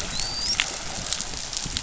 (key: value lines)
label: biophony, dolphin
recorder: SoundTrap 500